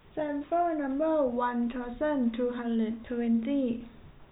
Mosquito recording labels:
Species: no mosquito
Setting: cup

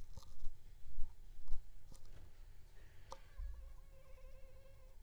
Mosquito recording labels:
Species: Culex pipiens complex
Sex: female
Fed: unfed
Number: one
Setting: cup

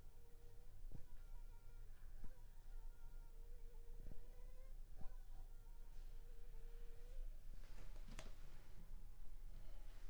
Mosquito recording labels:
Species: Anopheles funestus s.s.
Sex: female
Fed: unfed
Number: one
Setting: cup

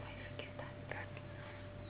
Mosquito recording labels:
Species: Anopheles gambiae s.s.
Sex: female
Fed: unfed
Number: one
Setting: insect culture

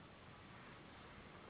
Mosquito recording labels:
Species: Anopheles gambiae s.s.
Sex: female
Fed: unfed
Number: one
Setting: insect culture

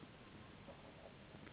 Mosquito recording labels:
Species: Anopheles gambiae s.s.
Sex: female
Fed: unfed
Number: one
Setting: insect culture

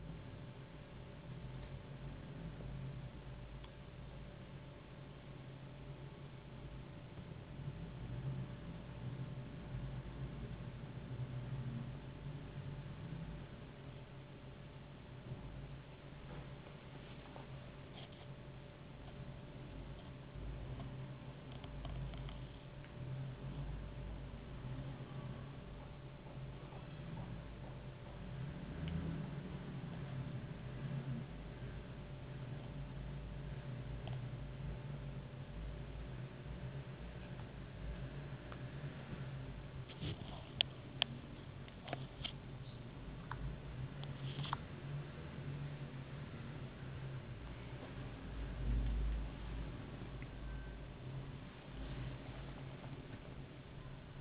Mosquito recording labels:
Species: no mosquito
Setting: insect culture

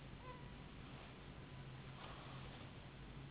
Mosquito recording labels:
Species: Anopheles gambiae s.s.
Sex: female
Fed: unfed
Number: one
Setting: insect culture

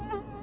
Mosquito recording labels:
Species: Anopheles albimanus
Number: one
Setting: insect culture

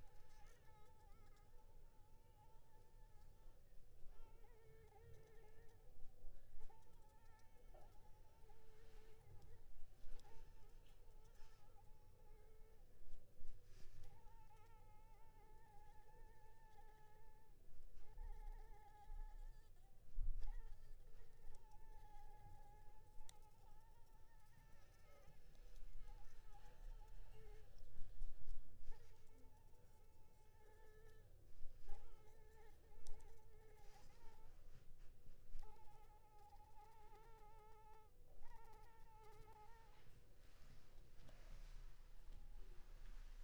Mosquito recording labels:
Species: Anopheles maculipalpis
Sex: female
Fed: unfed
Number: one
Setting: cup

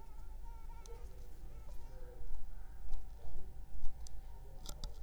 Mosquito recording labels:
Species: Anopheles arabiensis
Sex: female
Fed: unfed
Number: one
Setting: cup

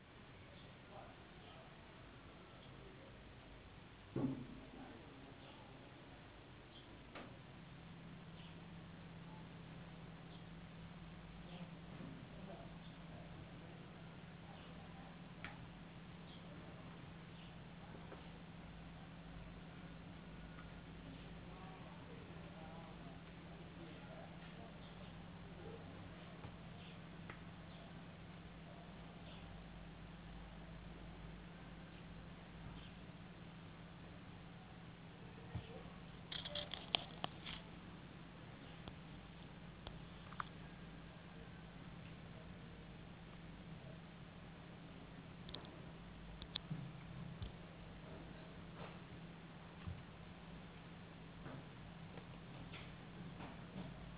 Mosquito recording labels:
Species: no mosquito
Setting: insect culture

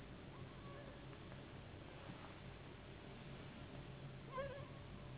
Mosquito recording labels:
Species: Anopheles gambiae s.s.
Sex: female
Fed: unfed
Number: one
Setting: insect culture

